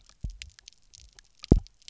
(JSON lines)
{"label": "biophony, double pulse", "recorder": "SoundTrap 300"}